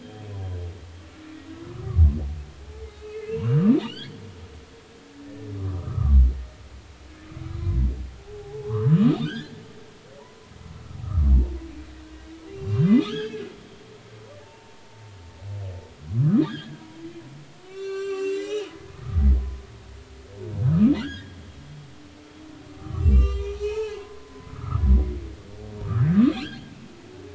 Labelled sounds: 1.6	2.0	humpback whale, 0.96 to 1.5 kHz
3.0	4.2	humpback whale, 2.5 to 4.9 kHz
5.2	6.2	humpback whale, 0.99 to 1.8 kHz
7.6	9.6	humpback whale, 0.80 to 3.8 kHz
10.2	10.5	humpback whale, 0.83 to 1.1 kHz
11.0	11.3	humpback whale, 1.1 to 1.4 kHz
12.5	13.4	humpback whale, 1.5 to 3.8 kHz
14.4	14.8	humpback whale, 0.83 to 0.96 kHz
16.1	16.8	humpback whale, 0.96 to 2.0 kHz
17.7	18.7	humpback whale, 1.1 to 7.5 kHz
19.4	19.6	humpback whale, 0.96 to 1.1 kHz
20.7	21.4	humpback whale, 1.1 to 3.5 kHz
22.7	24.8	humpback whale, 0.80 to 7.6 kHz
26.0	26.7	humpback whale, 1.5 to 3.4 kHz

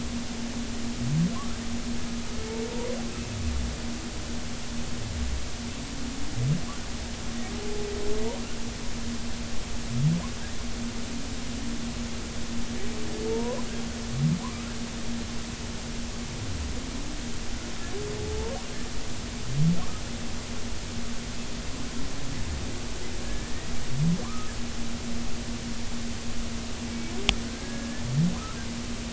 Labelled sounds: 2.7	3.0	humpback whale, 0.90 to 1.1 kHz
13.3	13.6	humpback whale, 0.86 to 1.1 kHz
18.3	18.5	humpback whale, 0.83 to 0.96 kHz
23.2	23.7	humpback whale, 1.6 to 2.0 kHz
24.2	24.5	humpback whale, 0.96 to 1.3 kHz
27.4	28.1	humpback whale, 1.4 to 1.8 kHz

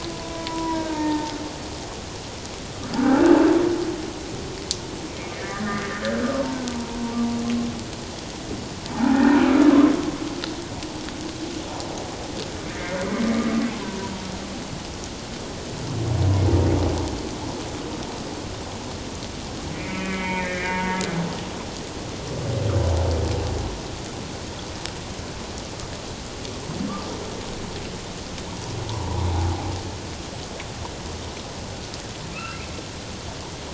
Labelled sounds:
0.3	1.3	humpback whale, 0.81 to 1.9 kHz
2.9	3.3	humpback whale, 1.2 to 1.6 kHz
5.4	7.0	humpback whale, 0.81 to 1.9 kHz
8.9	9.4	humpback whale, 0.78 to 2.5 kHz
12.7	13.0	humpback whale, 1.7 to 2.4 kHz
19.7	20.8	humpback whale, 1.6 to 2.5 kHz
28.9	29.3	humpback whale, 0.78 to 1.1 kHz
32.3	32.8	humpback whale, 1.2 to 2.8 kHz

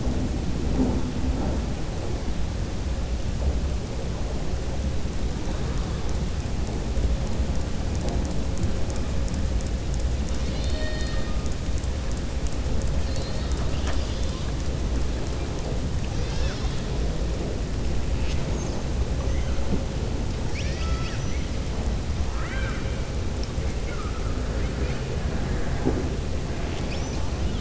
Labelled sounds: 13.5	14.4	killer whale, southern resident, 0.65 to 7.7 kHz
20.4	21.5	killer whale, southern resident, 1.3 to 6.6 kHz
22.2	22.9	killer whale, southern resident, 1.0 to 3.9 kHz

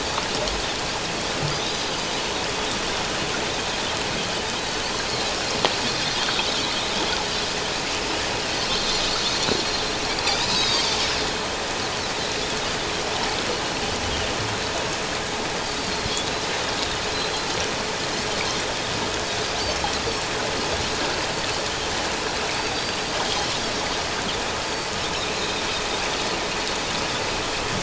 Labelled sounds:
1.5	1.8	Pacific white-sided dolphin, 3.3 to 4.0 kHz
10.3	10.8	Pacific white-sided dolphin, 3.4 to 5.2 kHz
17.1	17.5	Pacific white-sided dolphin, 3.9 to 4.2 kHz
22.7	23.6	Pacific white-sided dolphin, 2.9 to 4.8 kHz
24.7	24.9	Pacific white-sided dolphin, 4.4 to 4.7 kHz

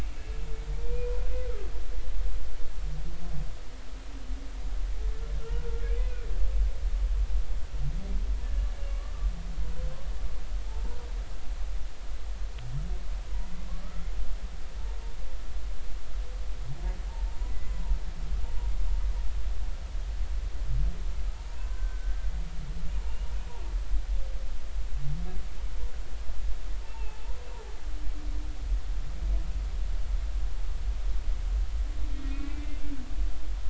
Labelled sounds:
0.2	0.5	humpback whale, 2.6 to 2.7 kHz
0.8	1.1	humpback whale, 2.3 to 2.5 kHz
5.5	6.2	humpback whale, 1.3 to 2.6 kHz
8.4	8.7	humpback whale, 1.7 to 1.8 kHz
10.6	11.1	humpback whale, 0.83 to 1.0 kHz
17.5	17.7	humpback whale, 1.9 to 2.1 kHz
21.6	22.2	humpback whale, 0.93 to 1.6 kHz
26.9	27.4	humpback whale, 0.80 to 2.8 kHz
32.3	32.8	humpback whale, 2.0 to 2.4 kHz

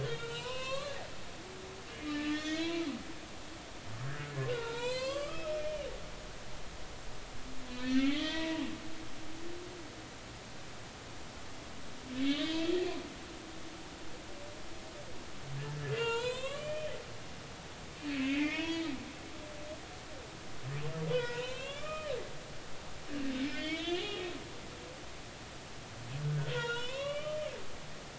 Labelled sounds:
0.0	1.0	humpback whale, 0.90 to 5.6 kHz
2.3	2.8	humpback whale, 1.5 to 3.6 kHz
4.5	5.9	humpback whale, 0.86 to 8.0 kHz
7.7	8.6	humpback whale, 0.90 to 3.9 kHz
12.4	12.7	humpback whale, 2.5 to 3.9 kHz
15.9	16.9	humpback whale, 0.86 to 8.0 kHz
18.2	18.8	humpback whale, 0.93 to 3.4 kHz
21.1	22.1	humpback whale, 0.90 to 4.3 kHz
23.4	24.3	humpback whale, 0.80 to 3.9 kHz
26.2	27.5	humpback whale, 0.96 to 4.0 kHz

